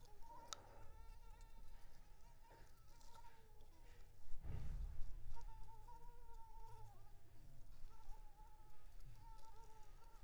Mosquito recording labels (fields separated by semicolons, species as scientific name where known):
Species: Anopheles arabiensis; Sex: female; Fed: unfed; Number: one; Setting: cup